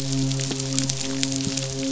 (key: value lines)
label: biophony, midshipman
recorder: SoundTrap 500